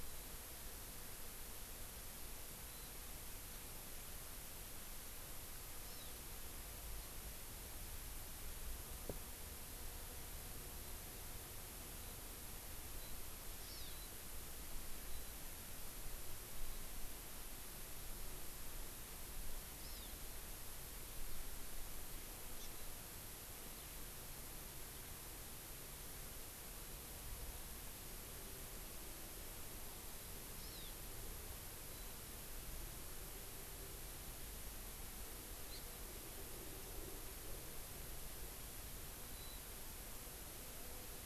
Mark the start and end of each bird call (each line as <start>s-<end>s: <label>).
0.0s-0.3s: Warbling White-eye (Zosterops japonicus)
2.6s-2.9s: Warbling White-eye (Zosterops japonicus)
5.8s-6.1s: Hawaii Amakihi (Chlorodrepanis virens)
12.0s-12.1s: Warbling White-eye (Zosterops japonicus)
13.0s-13.1s: Warbling White-eye (Zosterops japonicus)
13.6s-13.9s: Hawaii Amakihi (Chlorodrepanis virens)
13.9s-14.1s: Warbling White-eye (Zosterops japonicus)
15.1s-15.3s: Warbling White-eye (Zosterops japonicus)
19.8s-20.1s: Hawaii Amakihi (Chlorodrepanis virens)
22.6s-22.7s: Hawaii Amakihi (Chlorodrepanis virens)
30.6s-30.9s: Hawaii Amakihi (Chlorodrepanis virens)
31.9s-32.2s: Warbling White-eye (Zosterops japonicus)
39.3s-39.6s: Warbling White-eye (Zosterops japonicus)